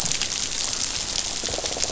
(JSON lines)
{"label": "biophony", "recorder": "SoundTrap 500"}